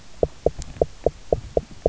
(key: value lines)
label: biophony, knock
recorder: SoundTrap 300